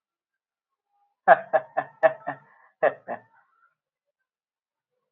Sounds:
Laughter